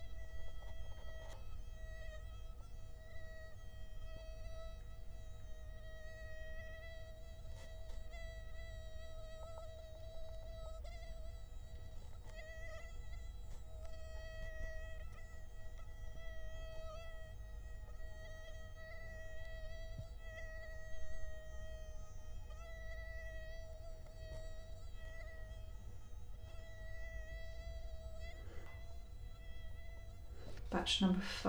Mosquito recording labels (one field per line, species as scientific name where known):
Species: Culex quinquefasciatus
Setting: cup